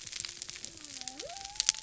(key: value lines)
label: biophony
recorder: SoundTrap 300